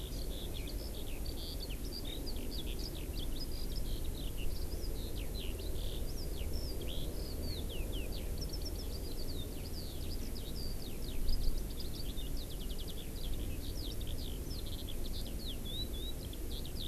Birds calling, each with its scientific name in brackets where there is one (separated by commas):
Eurasian Skylark (Alauda arvensis)